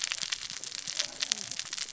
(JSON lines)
{"label": "biophony, cascading saw", "recorder": "SoundTrap 600 or HydroMoth"}